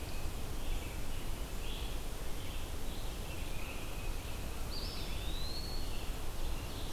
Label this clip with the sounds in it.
Red-eyed Vireo, Tufted Titmouse, Eastern Wood-Pewee